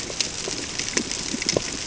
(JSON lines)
{"label": "ambient", "recorder": "HydroMoth"}